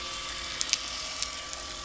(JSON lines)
{"label": "anthrophony, boat engine", "recorder": "SoundTrap 300"}